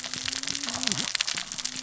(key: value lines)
label: biophony, cascading saw
recorder: SoundTrap 600 or HydroMoth